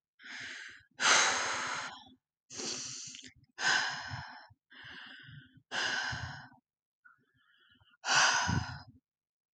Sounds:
Sigh